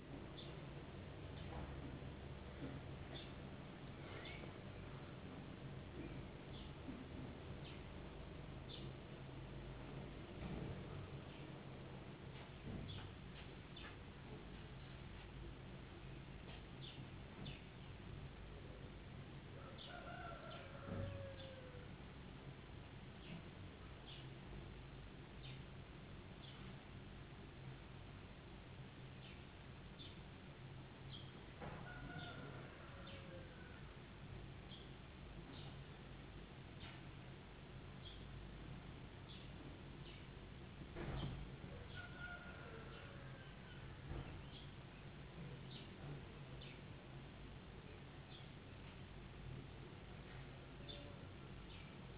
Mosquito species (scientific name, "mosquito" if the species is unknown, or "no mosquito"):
no mosquito